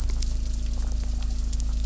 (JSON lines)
{"label": "anthrophony, boat engine", "recorder": "SoundTrap 300"}